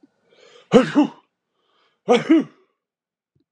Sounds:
Sneeze